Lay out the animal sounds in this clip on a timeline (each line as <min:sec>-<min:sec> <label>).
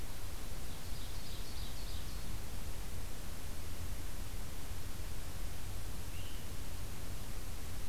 0:00.6-0:02.3 Ovenbird (Seiurus aurocapilla)
0:06.0-0:06.5 unidentified call